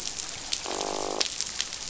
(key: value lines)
label: biophony, croak
recorder: SoundTrap 500